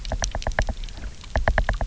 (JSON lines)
{"label": "biophony, knock", "recorder": "SoundTrap 300"}